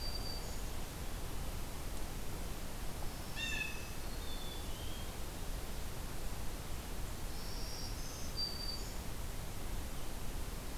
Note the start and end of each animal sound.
[0.00, 0.84] Black-throated Green Warbler (Setophaga virens)
[2.78, 4.11] Black-throated Green Warbler (Setophaga virens)
[3.01, 4.03] Blue Jay (Cyanocitta cristata)
[4.20, 5.08] Black-capped Chickadee (Poecile atricapillus)
[6.95, 9.23] Black-throated Green Warbler (Setophaga virens)

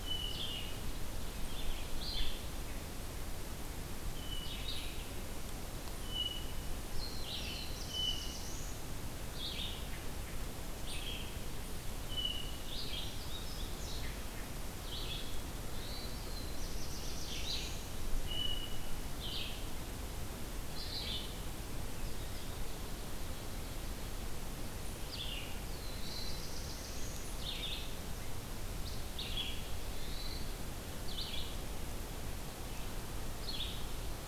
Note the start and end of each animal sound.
[0.00, 0.70] Hermit Thrush (Catharus guttatus)
[0.00, 34.28] Red-eyed Vireo (Vireo olivaceus)
[4.02, 4.86] Hermit Thrush (Catharus guttatus)
[5.91, 6.79] Hermit Thrush (Catharus guttatus)
[7.22, 8.88] Black-throated Blue Warbler (Setophaga caerulescens)
[7.82, 8.44] Hermit Thrush (Catharus guttatus)
[10.71, 11.86] Eastern Chipmunk (Tamias striatus)
[11.99, 12.82] Hermit Thrush (Catharus guttatus)
[13.09, 14.17] Tufted Titmouse (Baeolophus bicolor)
[15.54, 16.16] Hermit Thrush (Catharus guttatus)
[15.76, 17.91] Black-throated Blue Warbler (Setophaga caerulescens)
[18.19, 19.03] Hermit Thrush (Catharus guttatus)
[25.43, 27.33] Black-throated Blue Warbler (Setophaga caerulescens)
[25.92, 26.49] Hermit Thrush (Catharus guttatus)
[29.90, 30.60] Hermit Thrush (Catharus guttatus)

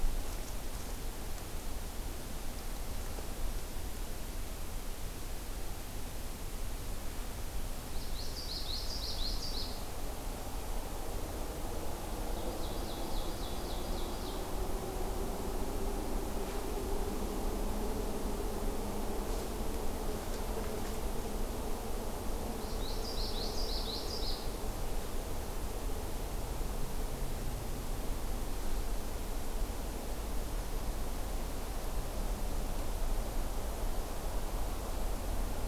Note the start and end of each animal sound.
[7.74, 9.90] Common Yellowthroat (Geothlypis trichas)
[12.41, 14.57] Ovenbird (Seiurus aurocapilla)
[22.43, 24.61] Common Yellowthroat (Geothlypis trichas)

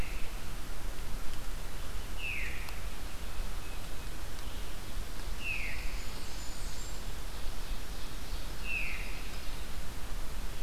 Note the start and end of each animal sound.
[2.11, 2.54] Veery (Catharus fuscescens)
[5.26, 7.30] Blackburnian Warbler (Setophaga fusca)
[5.29, 5.90] Veery (Catharus fuscescens)
[7.04, 9.72] Ovenbird (Seiurus aurocapilla)
[8.57, 9.08] Veery (Catharus fuscescens)

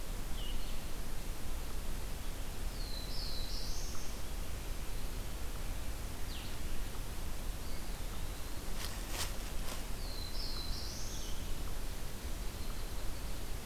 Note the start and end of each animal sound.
[2.07, 4.51] Black-throated Blue Warbler (Setophaga caerulescens)
[7.49, 8.82] Eastern Wood-Pewee (Contopus virens)
[9.52, 11.97] Black-throated Blue Warbler (Setophaga caerulescens)

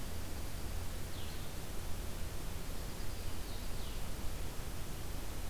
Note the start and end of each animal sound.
[0.00, 1.06] Dark-eyed Junco (Junco hyemalis)
[0.00, 5.50] Blue-headed Vireo (Vireo solitarius)
[2.54, 3.73] Dark-eyed Junco (Junco hyemalis)

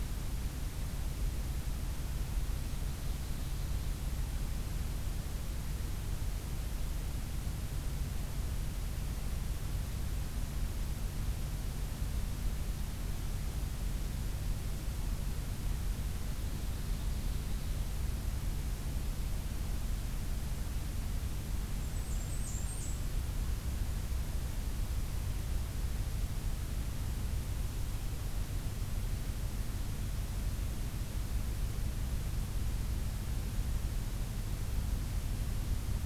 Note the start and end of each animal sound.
[2.22, 3.71] Ovenbird (Seiurus aurocapilla)
[16.22, 17.79] Ovenbird (Seiurus aurocapilla)
[21.76, 23.00] Blackburnian Warbler (Setophaga fusca)

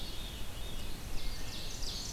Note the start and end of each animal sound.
[0.00, 0.91] Veery (Catharus fuscescens)
[0.67, 2.13] Ovenbird (Seiurus aurocapilla)
[1.09, 1.78] Wood Thrush (Hylocichla mustelina)
[1.31, 2.13] Black-and-white Warbler (Mniotilta varia)

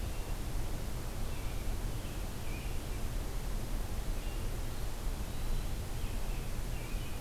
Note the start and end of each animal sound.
[1.17, 3.02] American Robin (Turdus migratorius)
[4.08, 4.69] American Robin (Turdus migratorius)
[4.50, 5.81] Eastern Wood-Pewee (Contopus virens)
[5.85, 7.20] American Robin (Turdus migratorius)

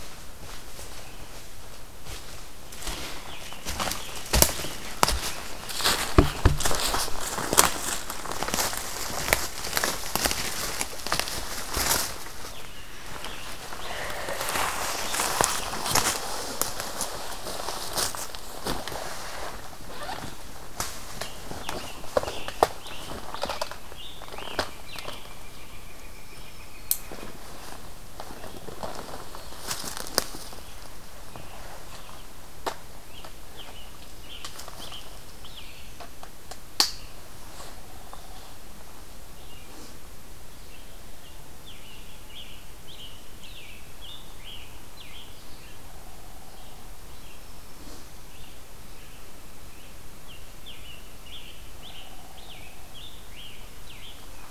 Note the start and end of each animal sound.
[3.18, 7.14] Scarlet Tanager (Piranga olivacea)
[12.42, 16.43] Scarlet Tanager (Piranga olivacea)
[20.94, 25.38] Scarlet Tanager (Piranga olivacea)
[24.64, 27.38] Pileated Woodpecker (Dryocopus pileatus)
[32.91, 36.23] Scarlet Tanager (Piranga olivacea)
[40.35, 45.65] Scarlet Tanager (Piranga olivacea)
[49.82, 54.50] Scarlet Tanager (Piranga olivacea)

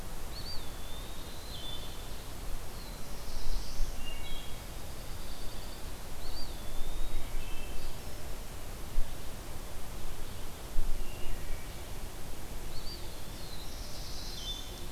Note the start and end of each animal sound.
[0.15, 1.69] Eastern Wood-Pewee (Contopus virens)
[1.26, 2.21] Wood Thrush (Hylocichla mustelina)
[2.17, 4.11] Black-throated Blue Warbler (Setophaga caerulescens)
[3.76, 4.86] Wood Thrush (Hylocichla mustelina)
[4.21, 6.12] Pine Warbler (Setophaga pinus)
[5.99, 7.40] Eastern Wood-Pewee (Contopus virens)
[6.96, 8.10] Wood Thrush (Hylocichla mustelina)
[10.77, 12.04] Wood Thrush (Hylocichla mustelina)
[12.46, 14.24] Eastern Wood-Pewee (Contopus virens)
[12.92, 14.91] Black-throated Blue Warbler (Setophaga caerulescens)
[14.18, 14.84] Wood Thrush (Hylocichla mustelina)

